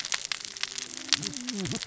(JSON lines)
{"label": "biophony, cascading saw", "recorder": "SoundTrap 600 or HydroMoth"}